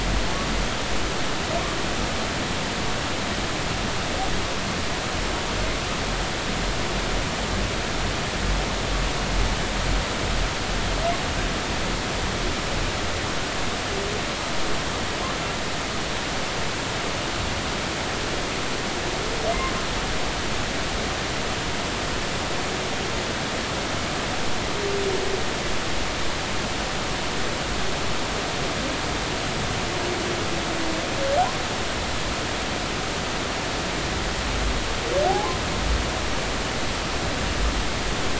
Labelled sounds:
35.3	35.6	humpback whale, 0.80 to 1.1 kHz

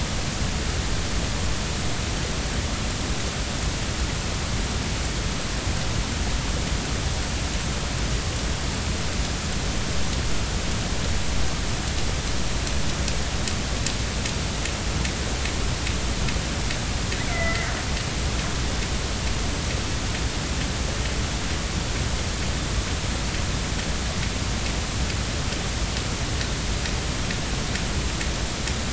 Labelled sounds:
17.3	17.7	killer whale, northern resident, A clan, AB subclan, B01 pod, call N01ii, 1.8 to 2.1 kHz

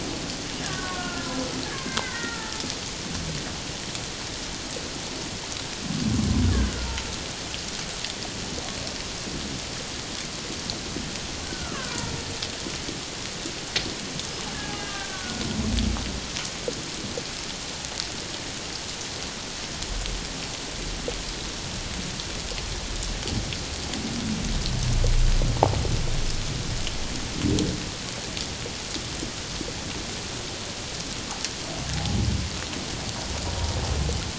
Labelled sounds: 0.6	1.3	killer whale, Bigg's (transient), 1.0 to 1.8 kHz
1.7	2.6	killer whale, Bigg's (transient), 1.3 to 2.2 kHz
11.4	12.2	killer whale, Bigg's (transient), 0.88 to 1.6 kHz
14.8	15.4	killer whale, Bigg's (transient), 1.4 to 1.7 kHz

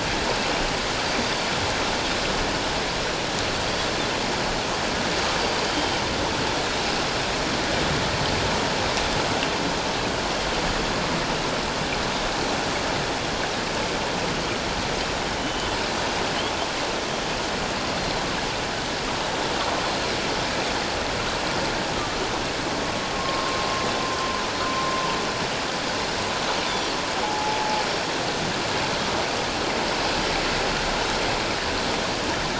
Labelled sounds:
1.0	1.3	Pacific white-sided dolphin, 4.6 to 4.8 kHz
5.7	6.0	Pacific white-sided dolphin, 3.0 to 3.2 kHz
15.4	15.8	Pacific white-sided dolphin, 2.9 to 3.1 kHz
18.0	18.3	Pacific white-sided dolphin, 4.0 to 4.2 kHz
23.1	23.6	humpback whale, 1.0 to 1.1 kHz
27.2	27.8	humpback whale, 0.78 to 0.91 kHz

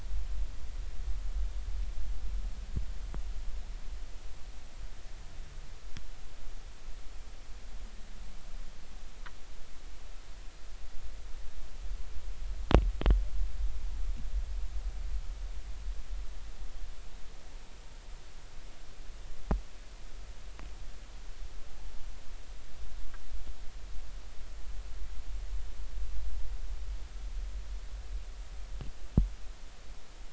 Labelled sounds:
21.8	22.1	humpback whale, 0.83 to 0.93 kHz

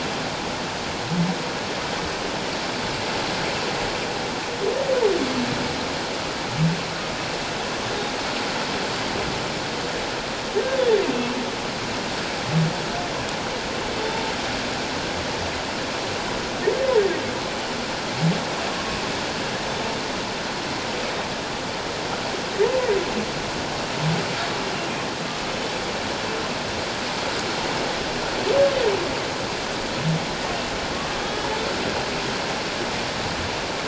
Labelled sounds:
30.9	31.5	humpback whale, 1.1 to 3.4 kHz

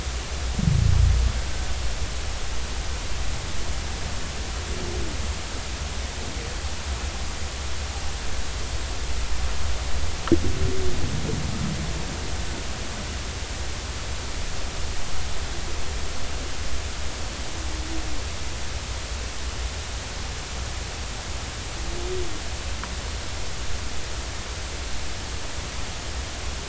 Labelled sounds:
1.5	1.7	humpback whale, 1.5 to 1.6 kHz

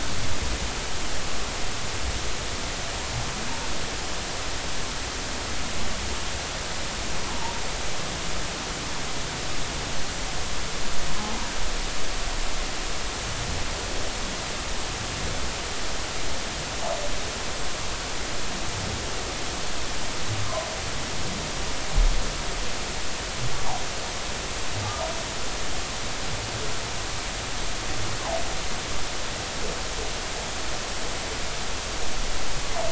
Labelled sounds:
7.3	7.6	humpback whale, 0.83 to 1.2 kHz

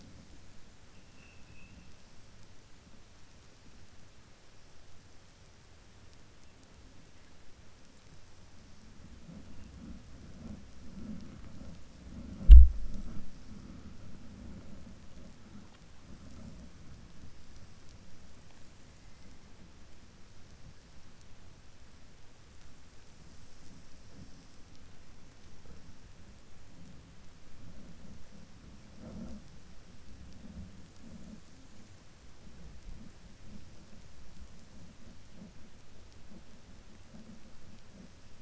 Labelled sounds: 1.0	1.8	vessel noise, 1.8 to 2.8 kHz

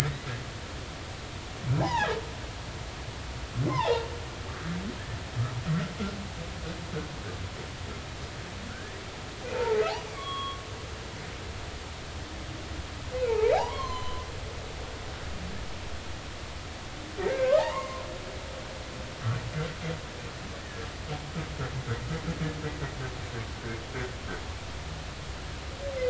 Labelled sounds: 0.0	0.3	humpback whale, 1.6 to 2.0 kHz
1.8	2.2	humpback whale, 0.80 to 3.0 kHz
3.7	4.0	humpback whale, 0.80 to 2.2 kHz
8.7	9.8	humpback whale, 0.83 to 1.8 kHz
10.1	10.6	humpback whale, 1.0 to 3.5 kHz
13.3	14.3	humpback whale, 0.80 to 6.3 kHz
17.3	18.0	humpback whale, 0.80 to 2.2 kHz
20.6	20.9	humpback whale, 1.6 to 1.9 kHz

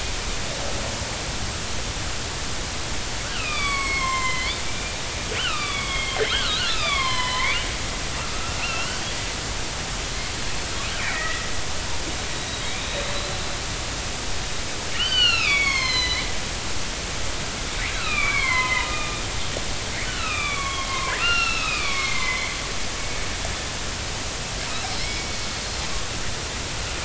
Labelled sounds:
3.2	4.9	killer whale, northern resident, 0.96 to 7.9 kHz
5.4	7.6	killer whale, northern resident, 0.80 to 5.5 kHz
8.6	9.0	killer whale, northern resident, 1.3 to 3.1 kHz
11.0	11.4	killer whale, northern resident, 1.8 to 2.0 kHz
12.6	12.9	killer whale, northern resident, 2.0 to 2.6 kHz
14.9	16.3	killer whale, northern resident, 0.96 to 6.8 kHz
17.9	19.2	killer whale, northern resident, 0.96 to 4.4 kHz
20.0	22.5	killer whale, northern resident, 0.86 to 5.6 kHz
25.0	25.3	killer whale, northern resident, 2.0 to 2.3 kHz

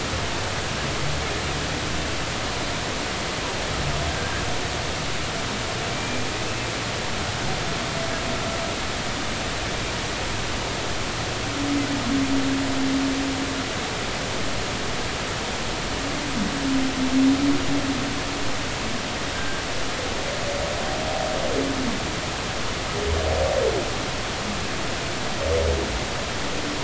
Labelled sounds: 5.9	6.3	humpback whale, 2.2 to 2.4 kHz
19.4	19.6	humpback whale, 1.5 to 1.6 kHz

